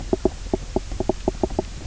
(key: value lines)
label: biophony, knock croak
recorder: SoundTrap 300